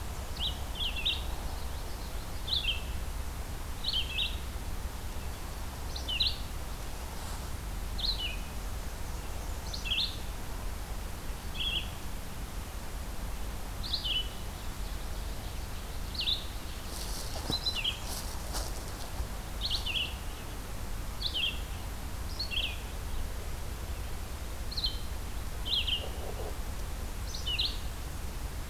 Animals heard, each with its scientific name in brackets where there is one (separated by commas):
Common Yellowthroat (Geothlypis trichas), Red-eyed Vireo (Vireo olivaceus), Black-and-white Warbler (Mniotilta varia), Ovenbird (Seiurus aurocapilla)